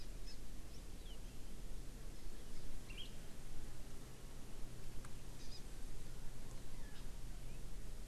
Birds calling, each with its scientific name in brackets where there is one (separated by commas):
Palila (Loxioides bailleui), Hawaii Amakihi (Chlorodrepanis virens)